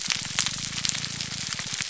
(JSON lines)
{"label": "biophony, grouper groan", "recorder": "SoundTrap 300"}